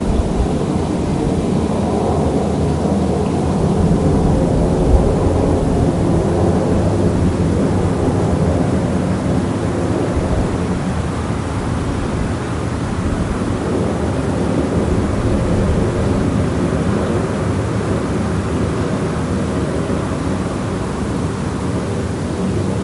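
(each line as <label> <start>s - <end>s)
Ambient noise in a field at night with a plane flying by quietly. 0.0s - 22.8s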